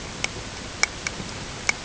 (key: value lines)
label: ambient
recorder: HydroMoth